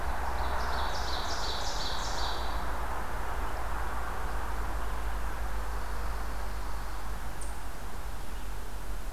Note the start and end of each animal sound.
0.0s-2.7s: Ovenbird (Seiurus aurocapilla)
5.5s-7.2s: Dark-eyed Junco (Junco hyemalis)

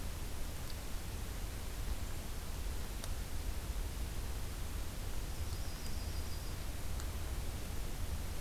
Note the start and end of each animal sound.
5.3s-6.6s: Yellow-rumped Warbler (Setophaga coronata)

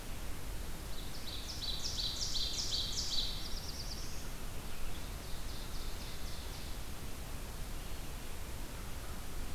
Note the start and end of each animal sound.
0.8s-3.5s: Ovenbird (Seiurus aurocapilla)
3.0s-4.5s: Black-throated Blue Warbler (Setophaga caerulescens)
4.9s-7.0s: Ovenbird (Seiurus aurocapilla)

